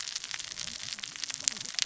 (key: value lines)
label: biophony, cascading saw
recorder: SoundTrap 600 or HydroMoth